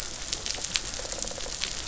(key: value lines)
label: biophony
recorder: SoundTrap 500